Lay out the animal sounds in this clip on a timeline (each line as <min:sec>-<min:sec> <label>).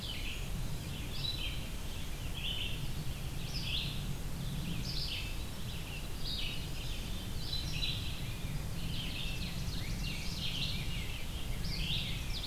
0:00.0-0:12.5 Red-eyed Vireo (Vireo olivaceus)
0:08.4-0:10.9 Ovenbird (Seiurus aurocapilla)
0:08.5-0:12.5 Rose-breasted Grosbeak (Pheucticus ludovicianus)
0:11.8-0:12.5 Ovenbird (Seiurus aurocapilla)